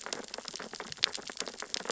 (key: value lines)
label: biophony, sea urchins (Echinidae)
recorder: SoundTrap 600 or HydroMoth